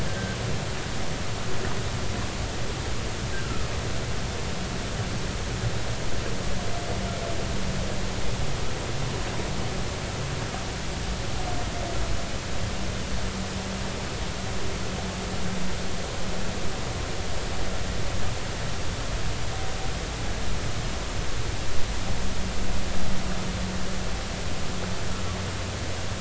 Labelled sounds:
0.1	0.4	humpback whale, 1.5 to 1.6 kHz

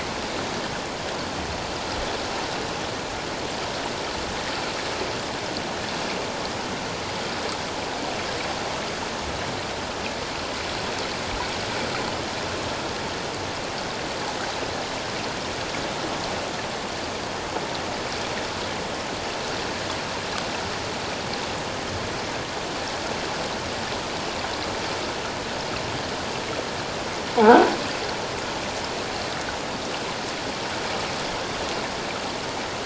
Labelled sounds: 27.4	27.7	croaking sound likely from a nearby submerged object, 1.2 to 1.7 kHz

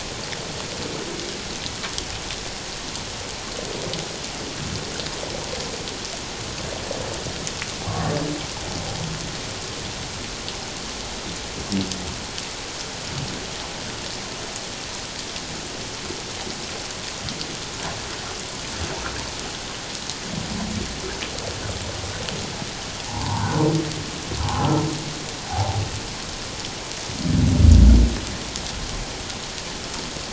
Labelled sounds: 23.1	23.5	humpback whale, 0.78 to 1.2 kHz
24.4	25.8	humpback whale, 0.78 to 1.1 kHz

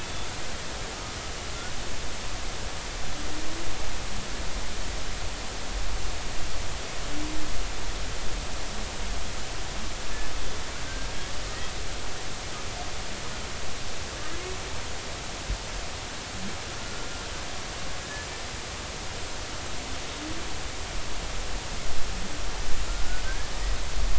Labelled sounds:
0.0	0.3	humpback whale, 3.4 to 3.6 kHz
18.0	18.3	humpback whale, 1.7 to 1.8 kHz
23.2	23.5	humpback whale, 1.5 to 1.8 kHz

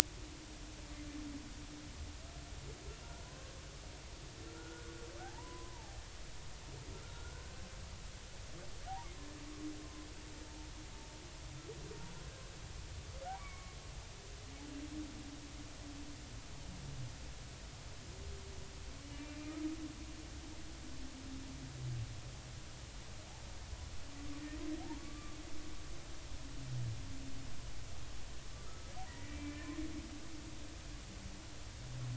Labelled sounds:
3.2	3.5	humpback whale, 0.96 to 1.1 kHz
4.5	6.0	humpback whale, 0.80 to 1.5 kHz
7.1	7.4	humpback whale, 1.3 to 1.5 kHz
13.4	13.8	humpback whale, 1.0 to 2.3 kHz
25.0	25.4	humpback whale, 1.1 to 1.2 kHz
28.6	29.7	humpback whale, 1.2 to 2.5 kHz

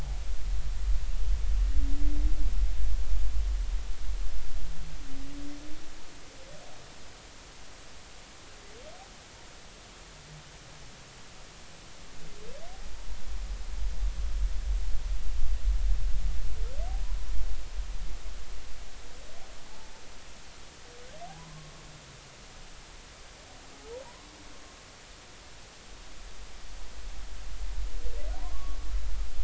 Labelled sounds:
19.7	19.9	humpback whale, 0.83 to 0.93 kHz
21.4	21.7	humpback whale, 0.93 to 1.1 kHz
24.0	24.3	humpback whale, 0.86 to 1.2 kHz
28.4	28.8	humpback whale, 0.93 to 1.2 kHz

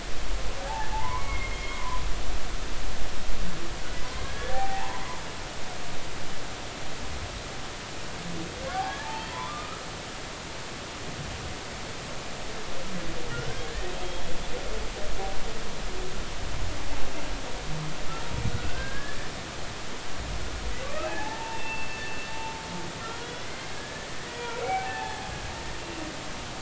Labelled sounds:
0.6	2.0	humpback whale, 0.80 to 3.3 kHz
4.2	5.0	humpback whale, 0.80 to 1.9 kHz
9.0	9.9	humpback whale, 0.83 to 4.5 kHz
13.3	13.7	humpback whale, 1.3 to 1.7 kHz
18.5	19.2	humpback whale, 1.4 to 1.8 kHz
21.0	22.0	humpback whale, 0.80 to 2.8 kHz
22.3	25.3	humpback whale, 0.80 to 3.6 kHz

